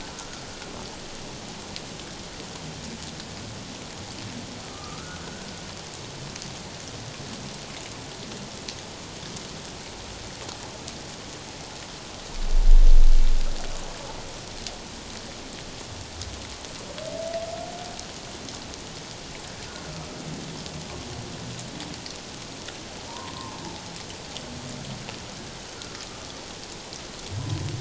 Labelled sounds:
4.6	5.5	humpback whale, 1.1 to 1.6 kHz
23.1	23.6	humpback whale, 0.81 to 1.1 kHz

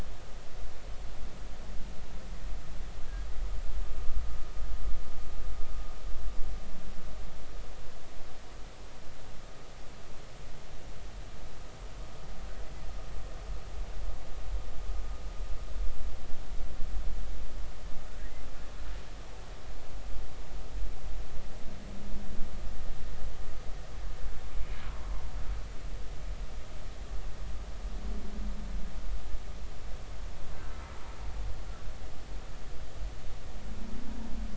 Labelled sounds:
30.7	31.0	humpback whale, 1.3 to 1.4 kHz

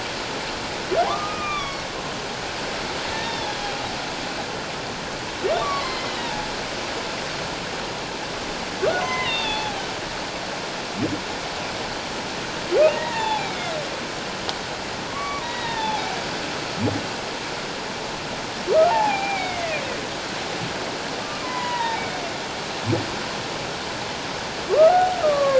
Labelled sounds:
1.1	1.9	humpback whale, 0.94 to 3.6 kHz
3.1	3.6	humpback whale, 1.7 to 3.7 kHz
5.6	6.5	humpback whale, 0.81 to 2.4 kHz
8.8	9.8	humpback whale, 0.78 to 4.0 kHz
12.9	13.8	humpback whale, 0.78 to 3.7 kHz
15.1	16.0	humpback whale, 0.78 to 3.9 kHz
18.9	19.8	humpback whale, 0.78 to 2.6 kHz
21.4	22.0	humpback whale, 0.78 to 2.1 kHz
24.6	25.5	humpback whale, 1.0 to 1.5 kHz

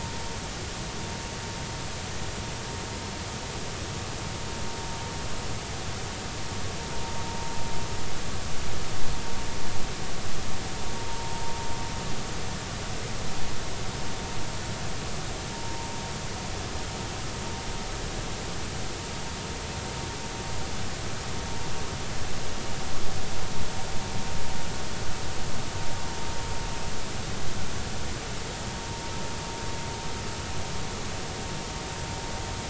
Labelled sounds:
15.5	15.9	vessel noise, 0.86 to 1.1 kHz

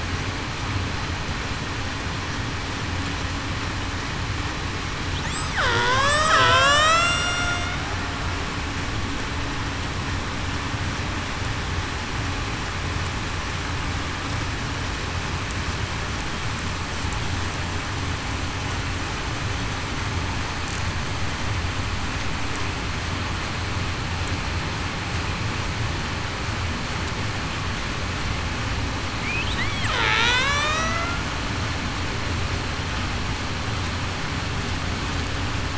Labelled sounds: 5.6	7.7	killer whale, Bigg's (transient), 0.45 to 8.0 kHz
30.0	31.2	killer whale, Bigg's (transient), 0.58 to 6.8 kHz

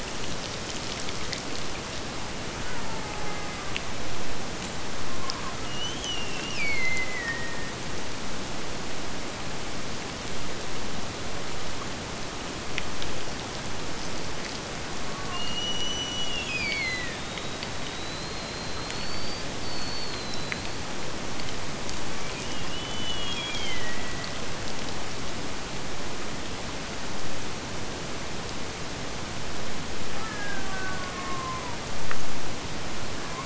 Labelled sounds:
2.6	4.0	killer whale, Bigg's (transient), Gulf of Alaska transient, 0.74 to 2.3 kHz
5.6	7.9	killer whale, Bigg's (transient), Gulf of Alaska transient, 1.7 to 6.5 kHz
14.9	17.3	killer whale, Bigg's (transient), Gulf of Alaska transient, 0.36 to 6.1 kHz
22.5	24.6	killer whale, Bigg's (transient), Gulf of Alaska transient, 1.7 to 3.6 kHz
30.1	32.1	killer whale, Bigg's (transient), Gulf of Alaska transient, 0.50 to 2.6 kHz

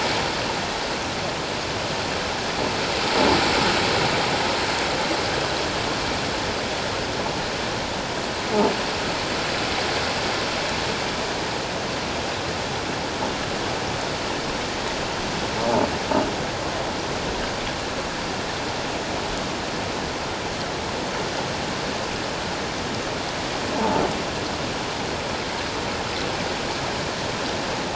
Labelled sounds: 23.8	24.0	croaking sound likely from a nearby submerged object, 0.81 to 1.0 kHz

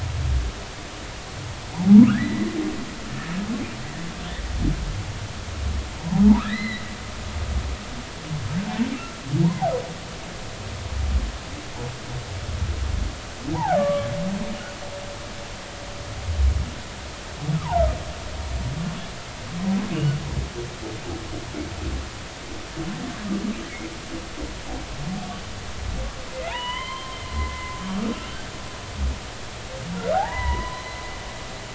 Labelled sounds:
2.1	2.5	humpback whale, 1.2 to 2.1 kHz
6.0	6.9	humpback whale, 0.80 to 4.2 kHz
8.9	9.2	humpback whale, 1.2 to 1.4 kHz
13.5	14.1	humpback whale, 0.80 to 1.2 kHz
17.6	17.8	humpback whale, 0.80 to 1.3 kHz
26.3	28.1	humpback whale, 0.80 to 3.2 kHz
30.1	31.0	humpback whale, 0.80 to 4.1 kHz

